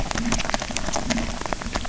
{"label": "biophony, grazing", "recorder": "SoundTrap 300"}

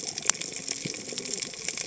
{"label": "biophony, cascading saw", "recorder": "HydroMoth"}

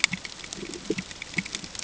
{"label": "ambient", "recorder": "HydroMoth"}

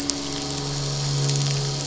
{"label": "anthrophony, boat engine", "recorder": "SoundTrap 500"}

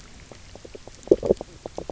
{"label": "biophony, knock croak", "recorder": "SoundTrap 300"}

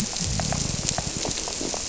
{"label": "biophony", "recorder": "SoundTrap 300"}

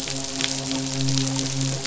{"label": "biophony, midshipman", "recorder": "SoundTrap 500"}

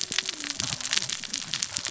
{"label": "biophony, cascading saw", "recorder": "SoundTrap 600 or HydroMoth"}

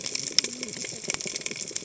{"label": "biophony, cascading saw", "recorder": "HydroMoth"}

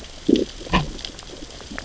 {"label": "biophony, growl", "recorder": "SoundTrap 600 or HydroMoth"}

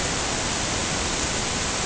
{"label": "ambient", "recorder": "HydroMoth"}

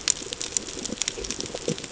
{"label": "ambient", "recorder": "HydroMoth"}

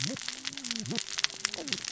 {"label": "biophony, cascading saw", "recorder": "SoundTrap 600 or HydroMoth"}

